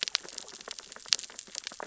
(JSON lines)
{"label": "biophony, sea urchins (Echinidae)", "recorder": "SoundTrap 600 or HydroMoth"}